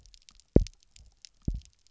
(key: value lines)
label: biophony, double pulse
recorder: SoundTrap 300